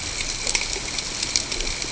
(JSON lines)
{"label": "ambient", "recorder": "HydroMoth"}